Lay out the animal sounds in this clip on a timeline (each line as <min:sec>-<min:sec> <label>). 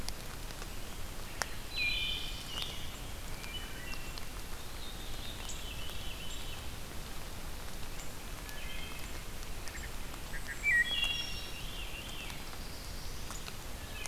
0:01.5-0:02.9 Black-throated Blue Warbler (Setophaga caerulescens)
0:01.7-0:02.6 Wood Thrush (Hylocichla mustelina)
0:02.5-0:14.1 unknown mammal
0:03.2-0:04.3 Wood Thrush (Hylocichla mustelina)
0:04.3-0:06.8 Veery (Catharus fuscescens)
0:08.4-0:09.1 Wood Thrush (Hylocichla mustelina)
0:09.6-0:11.8 Wood Thrush (Hylocichla mustelina)
0:10.2-0:11.0 Bay-breasted Warbler (Setophaga castanea)
0:10.5-0:12.9 Veery (Catharus fuscescens)
0:11.8-0:13.4 Black-throated Blue Warbler (Setophaga caerulescens)